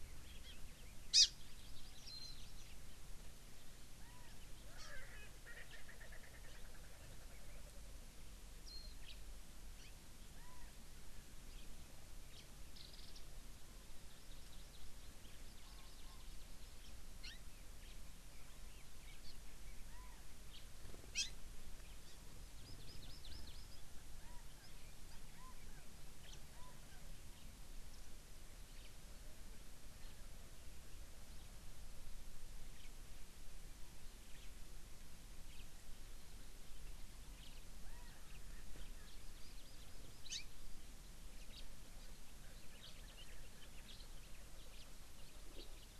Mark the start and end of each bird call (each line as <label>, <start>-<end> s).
Hawaii Amakihi (Chlorodrepanis virens), 0.4-0.6 s
Hawaii Amakihi (Chlorodrepanis virens), 1.1-2.8 s
Warbling White-eye (Zosterops japonicus), 2.1-2.4 s
Erckel's Francolin (Pternistis erckelii), 4.7-8.1 s
Hawaii Amakihi (Chlorodrepanis virens), 4.8-4.9 s
Warbling White-eye (Zosterops japonicus), 8.7-8.9 s
House Finch (Haemorhous mexicanus), 9.0-9.2 s
Hawaii Amakihi (Chlorodrepanis virens), 9.8-9.9 s
House Finch (Haemorhous mexicanus), 12.3-12.4 s
Warbling White-eye (Zosterops japonicus), 12.7-13.2 s
Hawaii Amakihi (Chlorodrepanis virens), 14.1-14.8 s
Hawaii Amakihi (Chlorodrepanis virens), 15.4-16.5 s
Hawaii Amakihi (Chlorodrepanis virens), 17.2-17.4 s
House Finch (Haemorhous mexicanus), 17.8-18.0 s
Hawaii Amakihi (Chlorodrepanis virens), 19.2-19.4 s
House Finch (Haemorhous mexicanus), 20.5-20.6 s
Hawaii Amakihi (Chlorodrepanis virens), 21.1-21.3 s
Hawaii Amakihi (Chlorodrepanis virens), 22.0-22.2 s
Hawaii Amakihi (Chlorodrepanis virens), 22.6-23.8 s
House Finch (Haemorhous mexicanus), 26.2-26.4 s
House Finch (Haemorhous mexicanus), 27.3-27.5 s
House Finch (Haemorhous mexicanus), 28.7-28.9 s
House Finch (Haemorhous mexicanus), 32.7-32.9 s
House Finch (Haemorhous mexicanus), 34.3-34.5 s
House Finch (Haemorhous mexicanus), 35.5-35.6 s
House Finch (Haemorhous mexicanus), 37.4-37.6 s
Hawaii Amakihi (Chlorodrepanis virens), 39.2-40.5 s
House Finch (Haemorhous mexicanus), 41.5-41.6 s
House Finch (Haemorhous mexicanus), 42.7-42.9 s
House Finch (Haemorhous mexicanus), 43.8-44.1 s
House Finch (Haemorhous mexicanus), 44.7-44.9 s
House Finch (Haemorhous mexicanus), 45.5-45.9 s